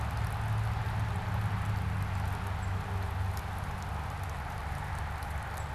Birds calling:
unidentified bird

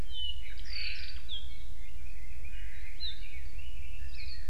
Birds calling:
Hawaii Akepa (Loxops coccineus), Red-billed Leiothrix (Leiothrix lutea)

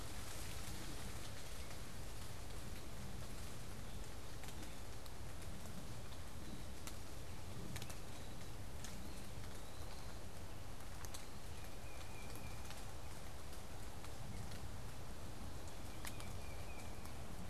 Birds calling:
Tufted Titmouse (Baeolophus bicolor), Eastern Wood-Pewee (Contopus virens)

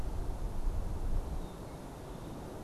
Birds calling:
Red-winged Blackbird (Agelaius phoeniceus)

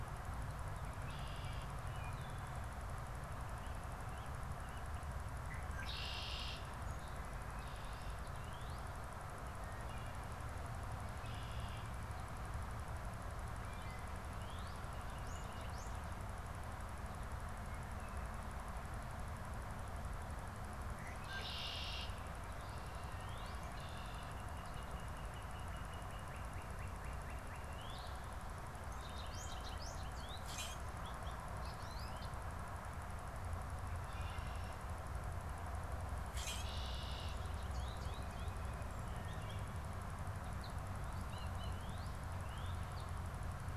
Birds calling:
Red-winged Blackbird (Agelaius phoeniceus), American Goldfinch (Spinus tristis), Wood Thrush (Hylocichla mustelina), Common Grackle (Quiscalus quiscula), Northern Cardinal (Cardinalis cardinalis)

